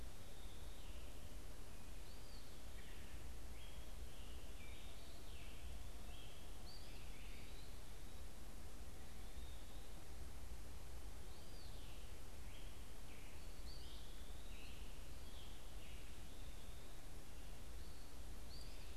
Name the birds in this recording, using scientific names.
unidentified bird, Contopus virens, Turdus migratorius